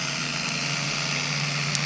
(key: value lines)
label: anthrophony, boat engine
recorder: SoundTrap 300